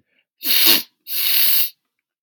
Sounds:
Sniff